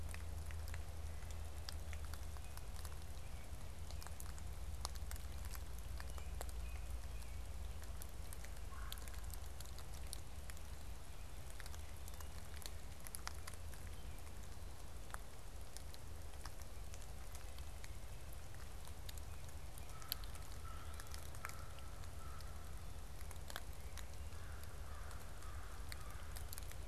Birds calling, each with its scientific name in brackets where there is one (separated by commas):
Red-bellied Woodpecker (Melanerpes carolinus), American Robin (Turdus migratorius), American Crow (Corvus brachyrhynchos)